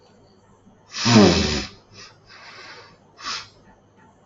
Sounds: Sniff